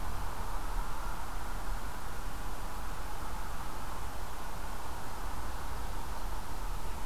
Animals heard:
forest ambience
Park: Marsh-Billings-Rockefeller National Historical Park